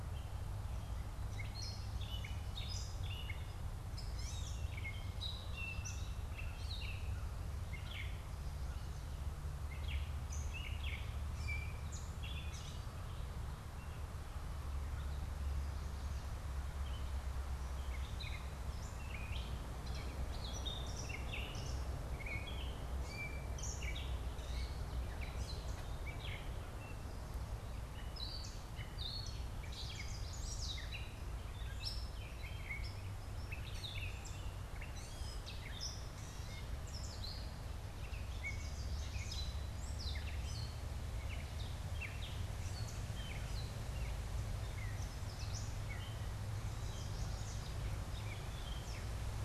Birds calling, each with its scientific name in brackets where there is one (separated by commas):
Gray Catbird (Dumetella carolinensis), Chestnut-sided Warbler (Setophaga pensylvanica)